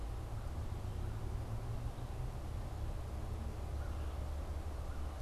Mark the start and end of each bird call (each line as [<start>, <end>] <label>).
[3.68, 5.18] American Crow (Corvus brachyrhynchos)